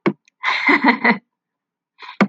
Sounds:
Laughter